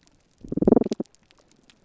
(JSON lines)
{"label": "biophony", "recorder": "SoundTrap 300"}